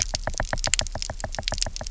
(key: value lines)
label: biophony, knock
recorder: SoundTrap 300